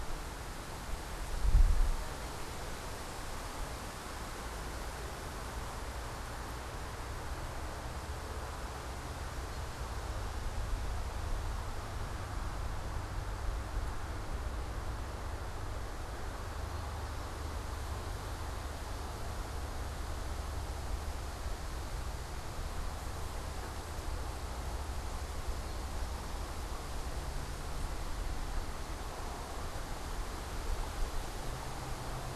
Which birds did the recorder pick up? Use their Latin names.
unidentified bird